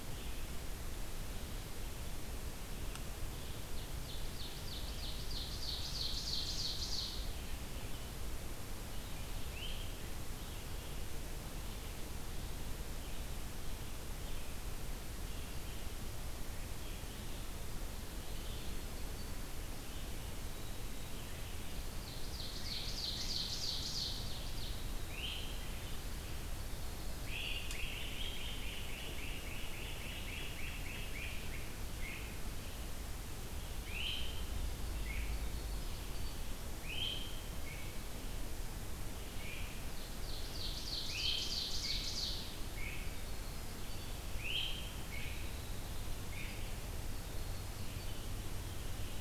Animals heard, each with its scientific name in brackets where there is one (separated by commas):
Ovenbird (Seiurus aurocapilla), Great Crested Flycatcher (Myiarchus crinitus), Red-eyed Vireo (Vireo olivaceus)